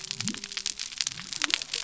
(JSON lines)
{"label": "biophony", "recorder": "SoundTrap 300"}